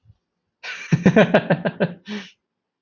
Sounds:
Laughter